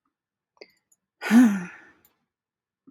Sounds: Sigh